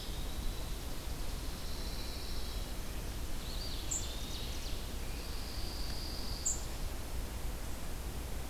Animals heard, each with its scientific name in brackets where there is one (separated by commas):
Pine Warbler (Setophaga pinus), Ovenbird (Seiurus aurocapilla), unidentified call, Chipping Sparrow (Spizella passerina), Eastern Wood-Pewee (Contopus virens)